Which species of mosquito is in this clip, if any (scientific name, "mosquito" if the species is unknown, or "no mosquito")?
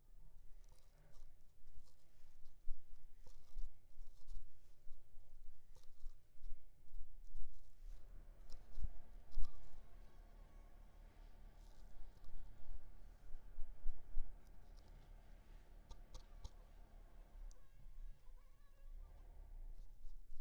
Culex pipiens complex